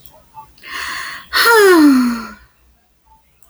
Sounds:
Sigh